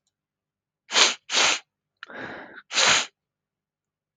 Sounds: Sniff